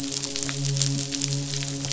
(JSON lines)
{"label": "biophony, midshipman", "recorder": "SoundTrap 500"}